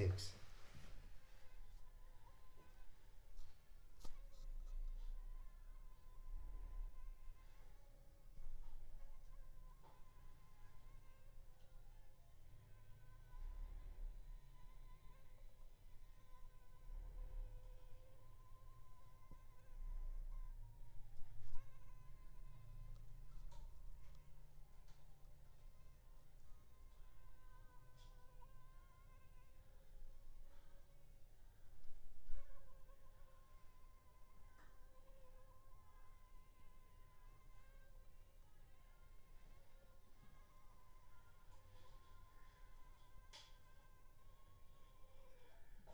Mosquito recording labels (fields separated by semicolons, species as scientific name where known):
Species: Anopheles funestus s.l.; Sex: female; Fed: unfed; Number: one; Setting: cup